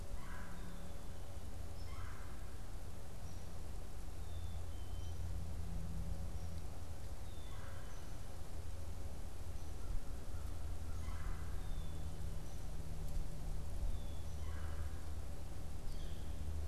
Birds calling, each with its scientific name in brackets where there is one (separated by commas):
American Crow (Corvus brachyrhynchos), unidentified bird, Black-capped Chickadee (Poecile atricapillus), Red-bellied Woodpecker (Melanerpes carolinus), Northern Flicker (Colaptes auratus)